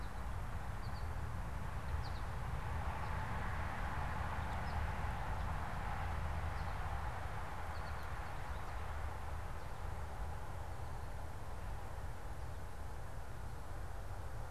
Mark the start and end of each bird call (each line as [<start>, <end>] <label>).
[0.00, 9.00] American Goldfinch (Spinus tristis)